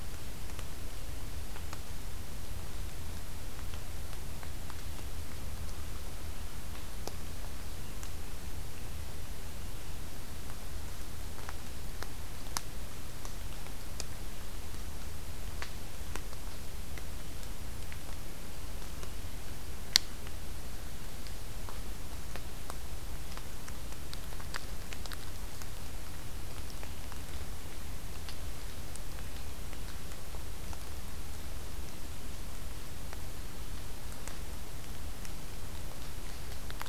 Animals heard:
forest ambience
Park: Acadia National Park